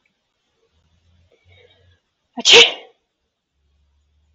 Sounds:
Sneeze